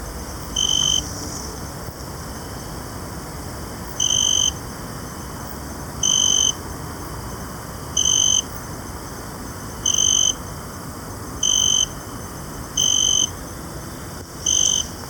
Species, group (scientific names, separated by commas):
Oecanthus pellucens, Orthoptera